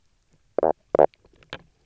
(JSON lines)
{"label": "biophony, knock croak", "recorder": "SoundTrap 300"}